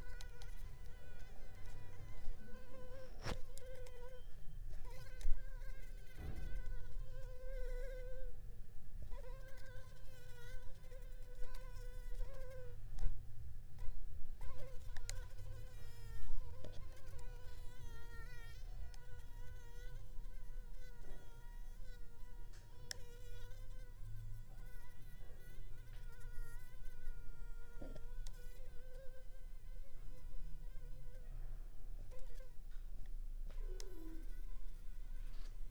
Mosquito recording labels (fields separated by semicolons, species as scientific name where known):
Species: Anopheles arabiensis; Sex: female; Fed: unfed; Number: one; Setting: cup